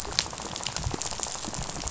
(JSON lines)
{"label": "biophony, rattle", "recorder": "SoundTrap 500"}